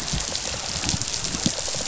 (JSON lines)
{"label": "biophony, rattle response", "recorder": "SoundTrap 500"}